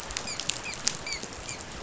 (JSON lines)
{"label": "biophony, dolphin", "recorder": "SoundTrap 500"}